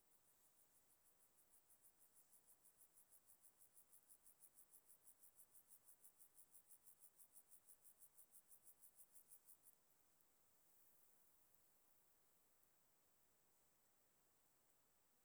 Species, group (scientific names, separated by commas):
Chorthippus jacobsi, Orthoptera